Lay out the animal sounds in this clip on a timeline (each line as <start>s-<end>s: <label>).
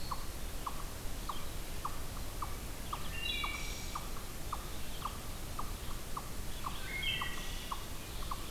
0.0s-8.5s: Red-eyed Vireo (Vireo olivaceus)
0.0s-8.5s: unknown mammal
2.8s-4.1s: Wood Thrush (Hylocichla mustelina)
6.6s-7.8s: Wood Thrush (Hylocichla mustelina)